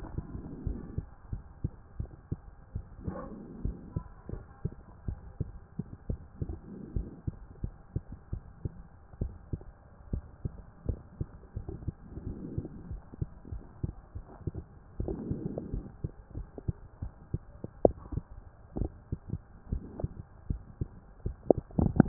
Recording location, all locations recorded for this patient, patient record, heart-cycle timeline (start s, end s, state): mitral valve (MV)
aortic valve (AV)+pulmonary valve (PV)+tricuspid valve (TV)+mitral valve (MV)
#Age: Adolescent
#Sex: Male
#Height: 136.0 cm
#Weight: 42.4 kg
#Pregnancy status: False
#Murmur: Absent
#Murmur locations: nan
#Most audible location: nan
#Systolic murmur timing: nan
#Systolic murmur shape: nan
#Systolic murmur grading: nan
#Systolic murmur pitch: nan
#Systolic murmur quality: nan
#Diastolic murmur timing: nan
#Diastolic murmur shape: nan
#Diastolic murmur grading: nan
#Diastolic murmur pitch: nan
#Diastolic murmur quality: nan
#Outcome: Normal
#Campaign: 2015 screening campaign
0.00	0.24	unannotated
0.24	0.64	diastole
0.64	0.80	S1
0.80	0.94	systole
0.94	1.08	S2
1.08	1.30	diastole
1.30	1.42	S1
1.42	1.60	systole
1.60	1.72	S2
1.72	1.96	diastole
1.96	2.10	S1
2.10	2.28	systole
2.28	2.42	S2
2.42	2.72	diastole
2.72	2.86	S1
2.86	3.07	systole
3.07	3.16	S2
3.16	3.58	diastole
3.58	3.76	S1
3.76	3.92	systole
3.92	4.04	S2
4.04	4.30	diastole
4.30	4.44	S1
4.44	4.64	systole
4.64	4.74	S2
4.74	5.04	diastole
5.04	5.18	S1
5.18	5.36	systole
5.36	5.50	S2
5.50	5.78	diastole
5.78	5.88	S1
5.88	6.06	systole
6.06	6.20	S2
6.20	6.37	diastole
6.37	6.52	S1
6.52	6.63	systole
6.63	6.74	S2
6.74	6.92	diastole
6.92	7.08	S1
7.08	7.24	systole
7.24	7.38	S2
7.38	7.60	diastole
7.60	7.74	S1
7.74	7.92	systole
7.92	8.06	S2
8.06	8.30	diastole
8.30	8.44	S1
8.44	8.62	systole
8.62	8.76	S2
8.76	9.18	diastole
9.18	9.34	S1
9.34	9.50	systole
9.50	9.61	S2
9.61	10.06	diastole
10.06	10.24	S1
10.24	10.44	systole
10.44	10.56	S2
10.56	10.82	diastole
10.82	11.00	S1
11.00	11.18	systole
11.18	11.28	S2
11.28	11.43	diastole
11.43	22.08	unannotated